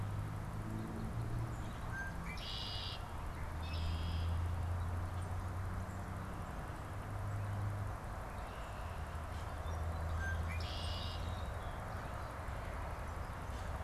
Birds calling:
Red-winged Blackbird (Agelaius phoeniceus)
Song Sparrow (Melospiza melodia)

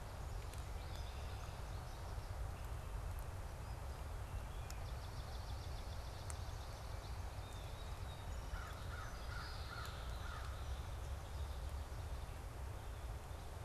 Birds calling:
American Crow (Corvus brachyrhynchos)
Swamp Sparrow (Melospiza georgiana)
Song Sparrow (Melospiza melodia)
American Goldfinch (Spinus tristis)
Red-winged Blackbird (Agelaius phoeniceus)

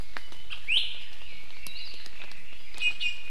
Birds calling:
Red-billed Leiothrix (Leiothrix lutea)
Hawaii Akepa (Loxops coccineus)
Iiwi (Drepanis coccinea)

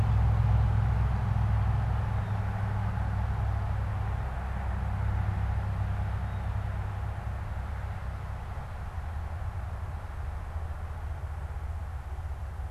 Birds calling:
unidentified bird

